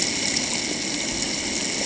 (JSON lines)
{"label": "ambient", "recorder": "HydroMoth"}